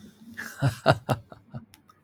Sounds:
Laughter